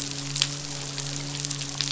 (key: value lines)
label: biophony, midshipman
recorder: SoundTrap 500